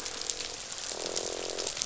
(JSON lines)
{"label": "biophony, croak", "recorder": "SoundTrap 500"}